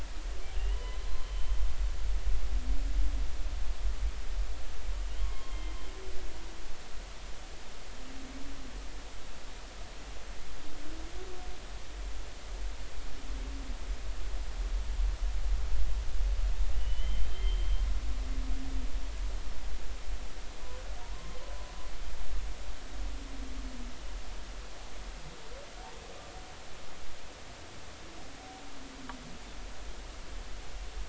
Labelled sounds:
0.5	1.6	humpback whale, 0.93 to 3.2 kHz
5.2	5.8	humpback whale, 1.0 to 3.2 kHz
16.7	17.8	humpback whale, 2.7 to 3.2 kHz
21.0	21.4	humpback whale, 0.90 to 1.2 kHz

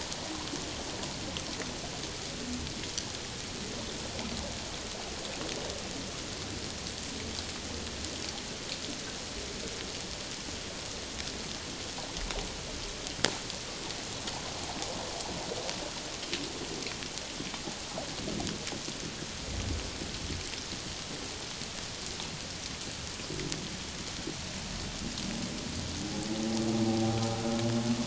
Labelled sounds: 26.9	27.2	humpback whale, 0.78 to 0.81 kHz

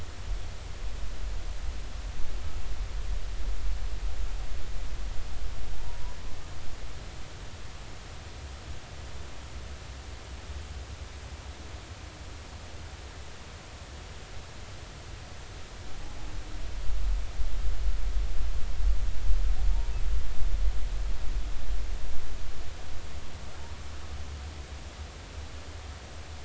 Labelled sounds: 5.7	6.0	humpback whale, 0.80 to 0.99 kHz
19.7	20.0	humpback whale, 0.86 to 0.99 kHz

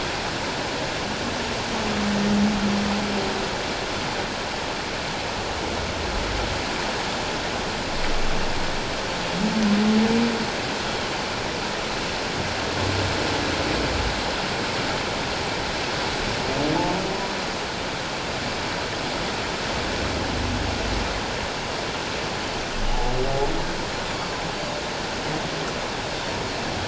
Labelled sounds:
22.9	23.1	humpback whale, 0.78 to 0.91 kHz
24.1	24.4	humpback whale, 4.3 to 4.7 kHz

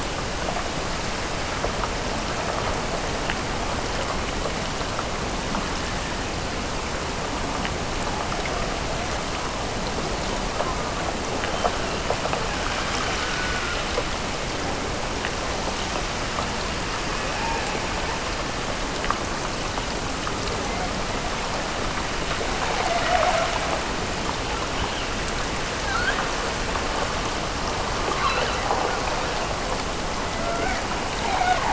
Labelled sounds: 12.3	14.2	killer whale, Bigg's (transient), Gulf of Alaska transient, 0.36 to 1.8 kHz
17.2	18.8	killer whale, Bigg's (transient), Gulf of Alaska transient, 0.41 to 2.6 kHz
22.4	23.7	killer whale, Bigg's (transient), Gulf of Alaska transient, 0.38 to 1.3 kHz

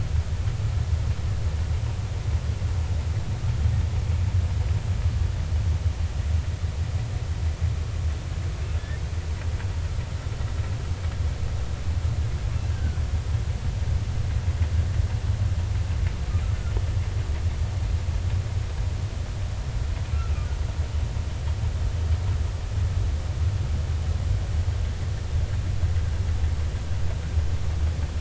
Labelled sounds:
12.8	13.0	humpback whale, 1.4 to 1.6 kHz

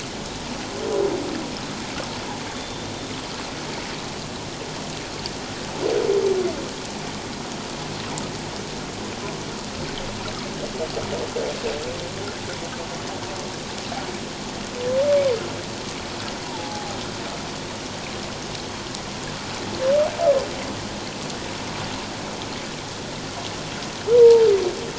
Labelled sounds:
2.5	2.9	humpback whale, 3.5 to 3.6 kHz
16.5	16.9	humpback whale, 0.78 to 1.1 kHz
24.1	24.5	humpback whale, 0.84 to 1.0 kHz

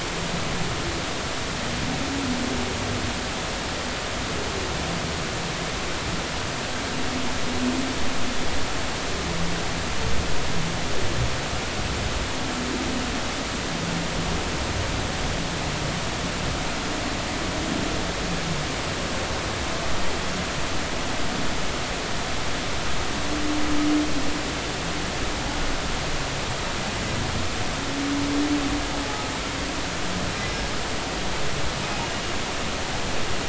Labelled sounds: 30.5	30.7	humpback whale, 5.2 to 5.4 kHz

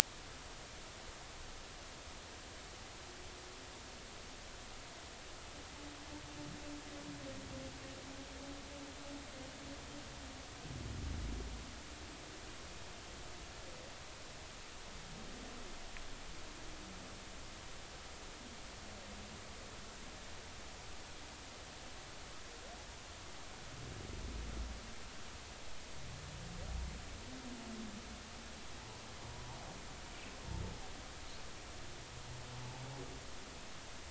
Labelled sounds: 29.3	29.6	humpback whale, 0.80 to 1.0 kHz

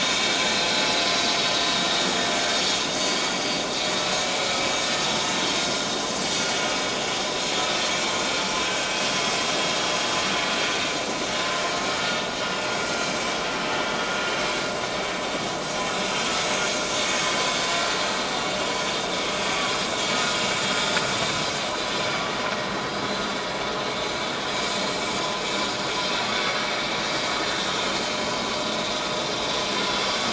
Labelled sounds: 3.0	3.6	vessel noise, 4.4 to 4.9 kHz
6.2	6.5	vessel noise, 5.7 to 6.0 kHz
8.6	8.9	vessel noise, 1.5 to 1.6 kHz
16.1	16.4	vessel noise, 7.1 to 7.2 kHz
27.5	27.8	vessel noise, 3.5 to 3.8 kHz

